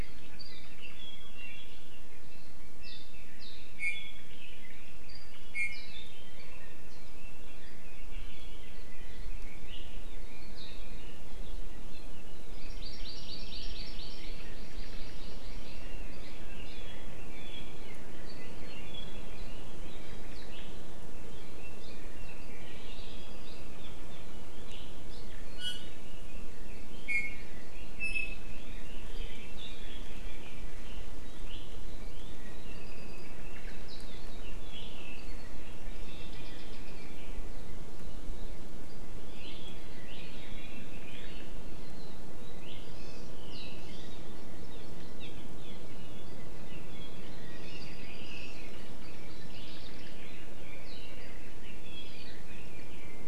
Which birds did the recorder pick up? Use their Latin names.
Himatione sanguinea, Drepanis coccinea, Chlorodrepanis virens